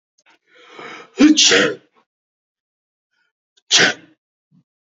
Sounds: Sneeze